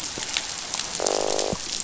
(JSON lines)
{"label": "biophony, croak", "recorder": "SoundTrap 500"}